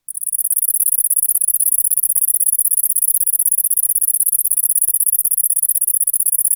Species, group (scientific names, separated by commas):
Calliphona koenigi, Orthoptera